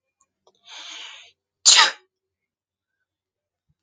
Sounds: Sneeze